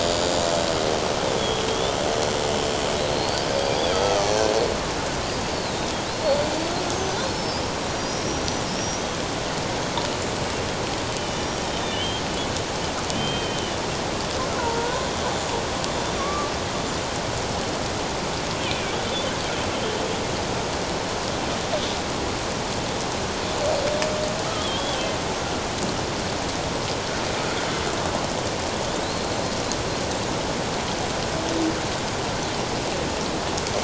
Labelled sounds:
1.7	2.0	killer whale, Bigg's (transient), 3.2 to 3.6 kHz
3.1	3.5	killer whale, Bigg's (transient), 4.1 to 4.8 kHz
3.8	4.2	killer whale, Bigg's (transient), 3.2 to 3.5 kHz
5.5	5.9	killer whale, Bigg's (transient), 3.6 to 4.6 kHz
7.1	7.6	killer whale, Bigg's (transient), 4.0 to 5.4 kHz
7.9	8.3	killer whale, Bigg's (transient), 4.7 to 5.8 kHz
8.7	9.2	killer whale, Bigg's (transient), 4.9 to 6.0 kHz
11.2	12.2	killer whale, Bigg's (transient), 2.8 to 5.7 kHz
13.1	13.8	killer whale, Bigg's (transient), 2.4 to 3.2 kHz
14.6	15.0	killer whale, Bigg's (transient), 0.88 to 1.6 kHz
16.2	16.5	killer whale, Bigg's (transient), 1.1 to 1.2 kHz
18.7	18.9	killer whale, Bigg's (transient), 2.2 to 2.6 kHz
29.0	29.4	killer whale, Bigg's (transient), 3.8 to 4.4 kHz

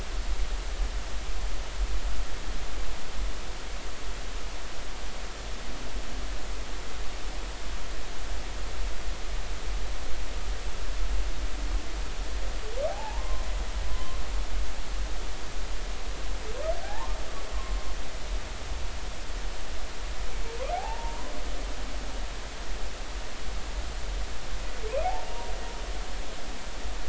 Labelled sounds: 12.9	14.2	humpback whale, 0.80 to 1.1 kHz
16.8	17.1	humpback whale, 0.80 to 1.9 kHz
20.7	21.3	humpback whale, 0.80 to 1.1 kHz
25.0	25.5	humpback whale, 0.80 to 0.99 kHz

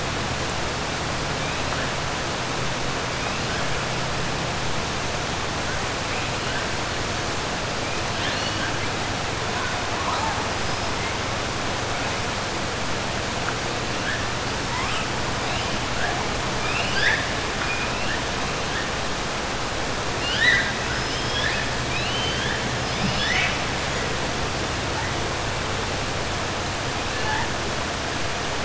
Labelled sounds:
8.1	8.7	killer whale, 1.6 to 5.9 kHz
20.1	22.6	killer whale, 1.5 to 5.7 kHz

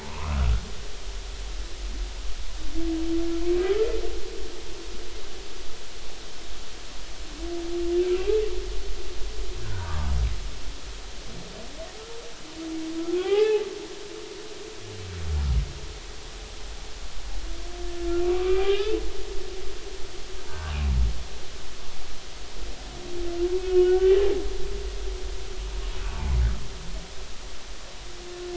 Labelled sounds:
0.0	0.5	humpback whale, 0.83 to 2.7 kHz
9.6	10.0	humpback whale, 1.4 to 1.7 kHz
13.2	13.6	humpback whale, 0.80 to 2.7 kHz
18.2	19.0	humpback whale, 1.1 to 2.8 kHz
20.5	20.7	humpback whale, 1.4 to 1.7 kHz
23.6	24.2	humpback whale, 1.4 to 3.1 kHz

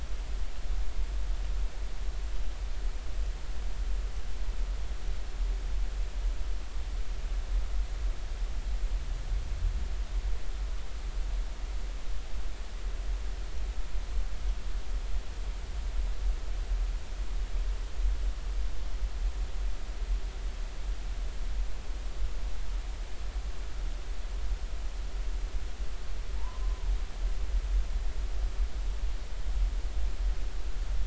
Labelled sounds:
26.4	26.9	humpback whale, 0.86 to 1.2 kHz

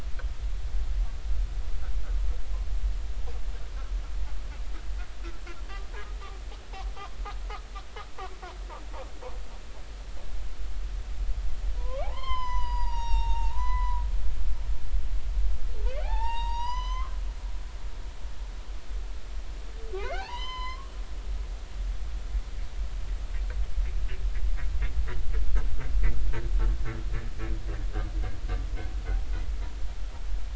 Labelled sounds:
11.8	14.0	humpback whale, 0.80 to 6.3 kHz
15.9	17.1	humpback whale, 0.80 to 7.6 kHz
20.0	20.9	humpback whale, 0.80 to 5.2 kHz

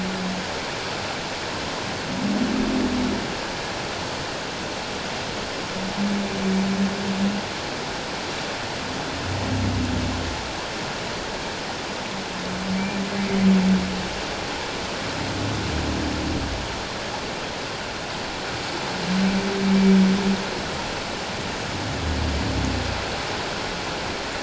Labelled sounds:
12.7	13.0	humpback whale, 2.2 to 2.4 kHz

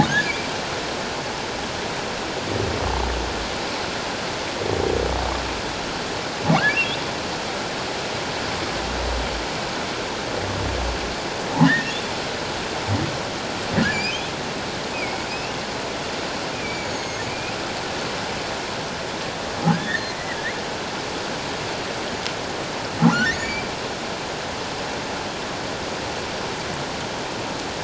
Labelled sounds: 0.1	0.5	humpback whale, 1.4 to 2.4 kHz
11.6	11.9	humpback whale, 1.6 to 2.0 kHz
13.9	14.2	humpback whale, 2.2 to 2.7 kHz
14.9	15.6	humpback whale, 2.1 to 2.9 kHz
16.5	17.5	humpback whale, 2.2 to 6.6 kHz
19.7	20.4	humpback whale, 1.4 to 2.1 kHz
23.3	23.7	humpback whale, 2.1 to 7.0 kHz

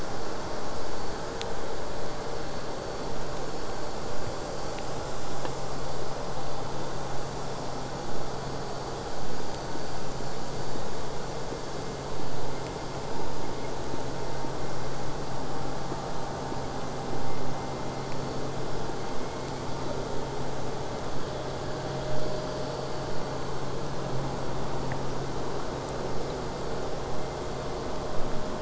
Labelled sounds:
9.1	14.1	vessel noise, 0 to 8.0 kHz
18.9	20.1	killer whale, southern resident, J pod, 1.6 to 5.2 kHz

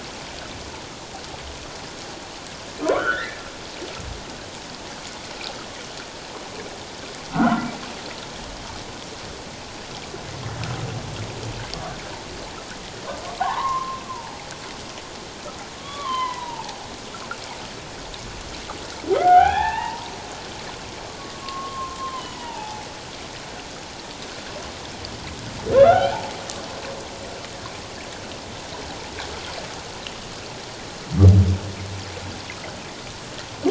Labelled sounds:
2.9	3.4	humpback whale, 0.94 to 2.2 kHz
7.3	7.7	humpback whale, 1.2 to 1.6 kHz
13.4	14.4	humpback whale, 0.78 to 1.8 kHz
15.8	16.9	humpback whale, 0.78 to 3.5 kHz
19.1	20.1	humpback whale, 0.78 to 2.9 kHz
21.4	22.8	humpback whale, 0.78 to 3.2 kHz
25.8	26.2	humpback whale, 1.2 to 1.6 kHz

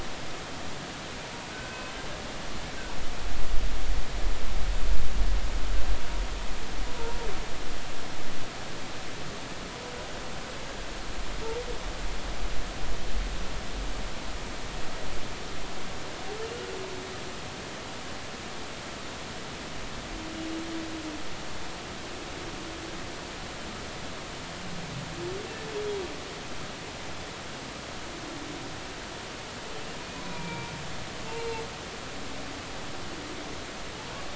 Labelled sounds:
1.5	1.8	humpback whale, 1.5 to 1.6 kHz
30.3	30.7	humpback whale, 0.90 to 2.5 kHz
31.4	31.6	humpback whale, 2.2 to 2.3 kHz

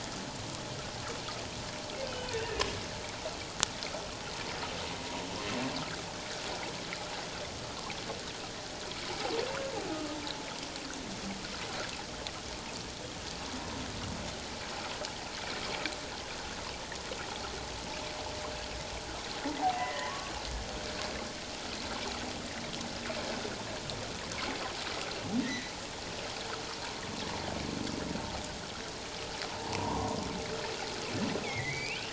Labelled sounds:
2.3	2.7	humpback whale, 1.7 to 1.9 kHz
9.9	10.2	humpback whale, 1.2 to 1.3 kHz
19.6	20.3	humpback whale, 0.78 to 2.1 kHz
25.4	25.7	humpback whale, 1.8 to 2.2 kHz
29.7	30.1	humpback whale, 0.84 to 1.2 kHz
31.4	32.1	humpback whale, 1.9 to 3.1 kHz

